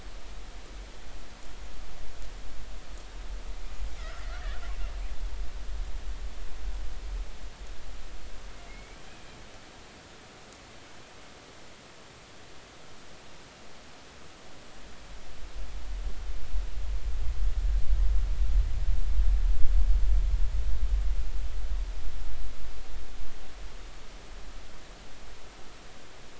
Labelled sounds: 4.0	4.2	killer whale, 1.2 to 1.6 kHz
8.7	9.4	killer whale, 2.0 to 2.6 kHz

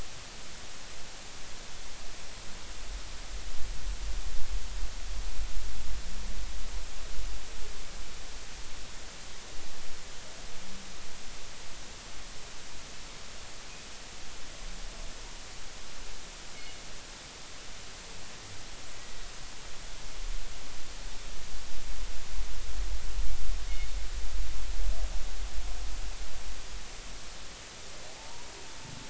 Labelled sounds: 28.2	28.5	humpback whale, 0.80 to 1.0 kHz

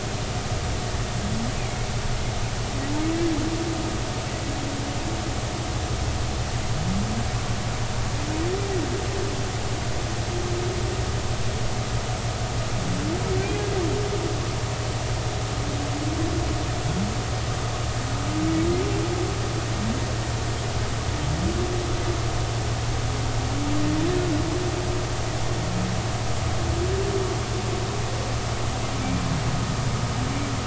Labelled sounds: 1.6	1.9	humpback whale, 2.1 to 2.6 kHz

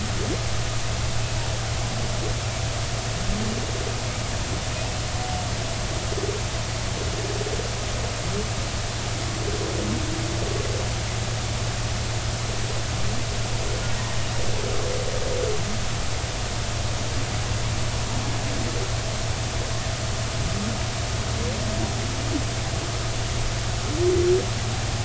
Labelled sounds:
13.9	14.2	humpback whale, 1.8 to 1.9 kHz

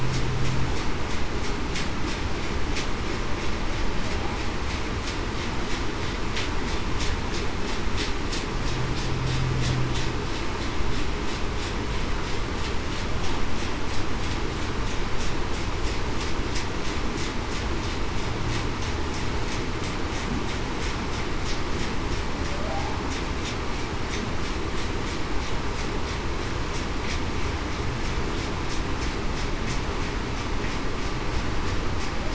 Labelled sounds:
22.5	22.8	humpback whale, 0.56 to 0.68 kHz

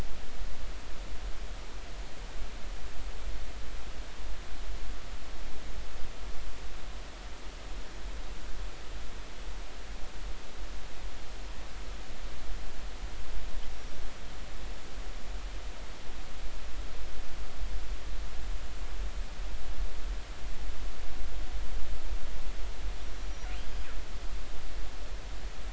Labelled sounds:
23.6	23.9	killer whale, northern resident, 4.8 to 5.0 kHz

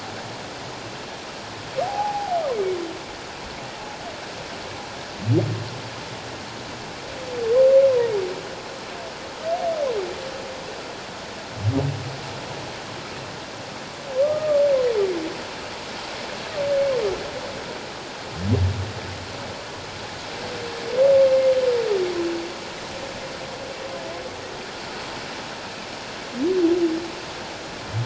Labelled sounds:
1.8	2.4	humpback whale, 0.78 to 0.94 kHz
14.2	14.6	humpback whale, 1.0 to 1.3 kHz

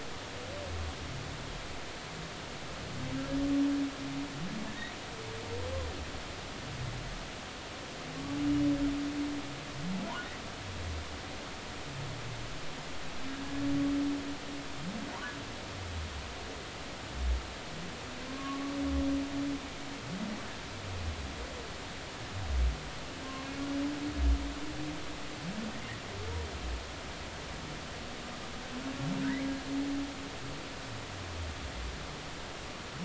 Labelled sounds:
4.7	4.9	humpback whale, 1.7 to 2.0 kHz
18.3	18.7	humpback whale, 1.0 to 1.2 kHz

